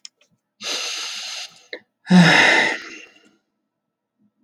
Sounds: Sigh